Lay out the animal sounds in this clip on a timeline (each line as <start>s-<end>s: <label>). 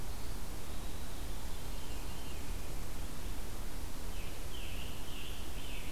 0.0s-1.4s: Eastern Wood-Pewee (Contopus virens)
1.5s-2.8s: Veery (Catharus fuscescens)
3.6s-5.9s: Scarlet Tanager (Piranga olivacea)